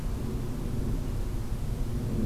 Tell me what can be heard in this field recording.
forest ambience